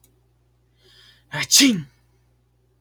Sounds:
Sneeze